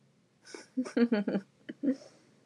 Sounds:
Laughter